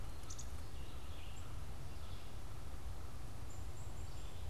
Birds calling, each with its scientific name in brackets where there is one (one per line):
Red-eyed Vireo (Vireo olivaceus)
Black-capped Chickadee (Poecile atricapillus)
American Crow (Corvus brachyrhynchos)